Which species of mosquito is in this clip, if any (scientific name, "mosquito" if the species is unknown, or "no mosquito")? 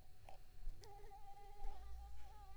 Mansonia africanus